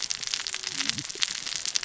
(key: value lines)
label: biophony, cascading saw
recorder: SoundTrap 600 or HydroMoth